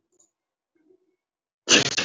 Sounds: Sneeze